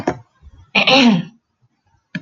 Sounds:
Throat clearing